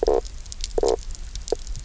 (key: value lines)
label: biophony, knock croak
recorder: SoundTrap 300